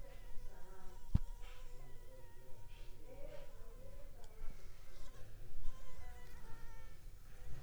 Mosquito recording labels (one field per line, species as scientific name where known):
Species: Anopheles funestus s.l.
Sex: female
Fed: unfed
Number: one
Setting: cup